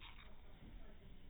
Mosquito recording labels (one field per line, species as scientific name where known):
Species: no mosquito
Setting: cup